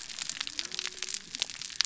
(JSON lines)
{"label": "biophony", "recorder": "SoundTrap 300"}